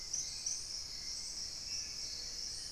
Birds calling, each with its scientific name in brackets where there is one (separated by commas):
Dusky-throated Antshrike (Thamnomanes ardesiacus), Long-billed Woodcreeper (Nasica longirostris), Spot-winged Antshrike (Pygiptila stellaris), Hauxwell's Thrush (Turdus hauxwelli), Gray-fronted Dove (Leptotila rufaxilla)